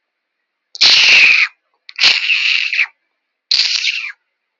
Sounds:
Sigh